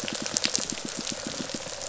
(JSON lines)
{"label": "biophony, pulse", "recorder": "SoundTrap 500"}